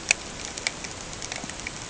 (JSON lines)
{"label": "ambient", "recorder": "HydroMoth"}